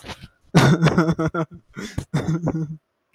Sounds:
Laughter